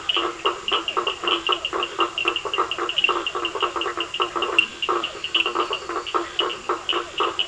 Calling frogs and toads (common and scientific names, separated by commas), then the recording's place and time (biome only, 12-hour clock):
blacksmith tree frog (Boana faber), Leptodactylus latrans, Cochran's lime tree frog (Sphaenorhynchus surdus)
Atlantic Forest, 8:45pm